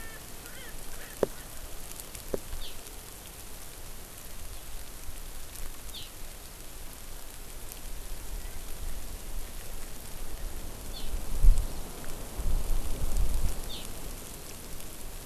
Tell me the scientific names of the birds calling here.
Pternistis erckelii